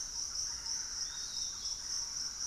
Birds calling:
Piratic Flycatcher (Legatus leucophaius), Thrush-like Wren (Campylorhynchus turdinus)

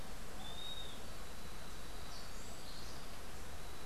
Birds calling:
Western Wood-Pewee (Contopus sordidulus)

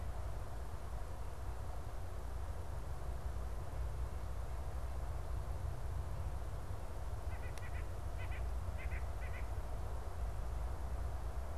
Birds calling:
White-breasted Nuthatch (Sitta carolinensis)

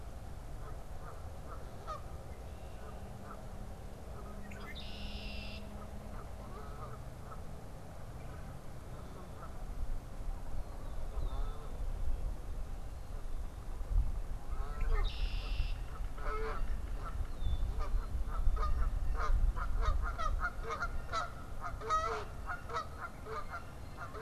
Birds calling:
Red-winged Blackbird (Agelaius phoeniceus), Yellow-bellied Sapsucker (Sphyrapicus varius), Canada Goose (Branta canadensis), Blue Jay (Cyanocitta cristata)

